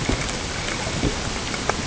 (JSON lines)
{"label": "ambient", "recorder": "HydroMoth"}